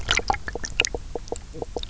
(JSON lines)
{"label": "biophony, knock croak", "recorder": "SoundTrap 300"}